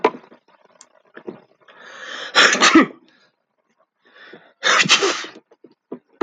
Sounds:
Sneeze